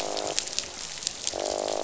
{"label": "biophony, croak", "recorder": "SoundTrap 500"}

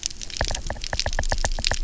{"label": "biophony, knock", "recorder": "SoundTrap 300"}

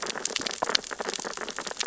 {"label": "biophony, sea urchins (Echinidae)", "recorder": "SoundTrap 600 or HydroMoth"}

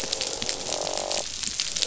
{"label": "biophony, croak", "recorder": "SoundTrap 500"}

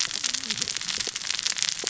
{"label": "biophony, cascading saw", "recorder": "SoundTrap 600 or HydroMoth"}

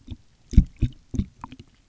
{"label": "geophony, waves", "recorder": "SoundTrap 300"}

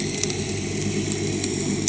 {"label": "anthrophony, boat engine", "recorder": "HydroMoth"}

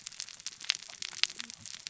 {"label": "biophony, cascading saw", "recorder": "SoundTrap 600 or HydroMoth"}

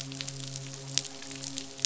{"label": "biophony, midshipman", "recorder": "SoundTrap 500"}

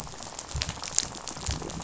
{"label": "biophony, rattle", "recorder": "SoundTrap 500"}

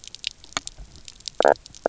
{"label": "biophony, knock croak", "recorder": "SoundTrap 300"}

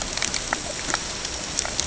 {"label": "ambient", "recorder": "HydroMoth"}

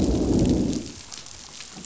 {"label": "biophony, growl", "recorder": "SoundTrap 500"}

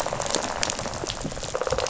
{"label": "biophony, rattle response", "recorder": "SoundTrap 500"}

